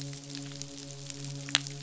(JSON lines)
{"label": "biophony, midshipman", "recorder": "SoundTrap 500"}